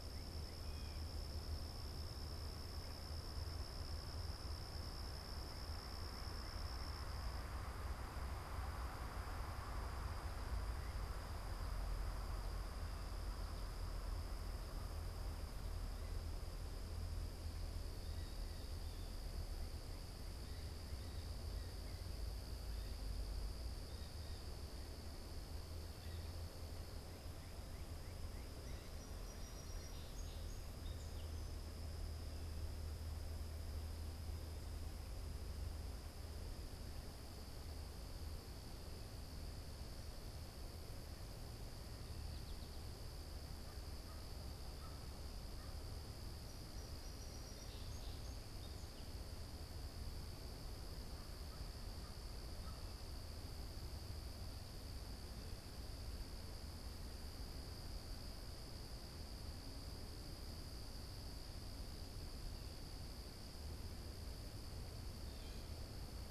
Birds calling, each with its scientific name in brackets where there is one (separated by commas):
American Crow (Corvus brachyrhynchos), Song Sparrow (Melospiza melodia)